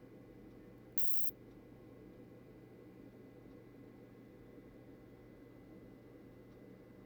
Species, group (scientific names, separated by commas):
Isophya modestior, Orthoptera